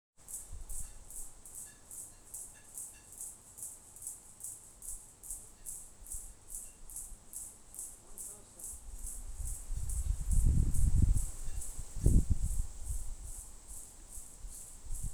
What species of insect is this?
Yoyetta robertsonae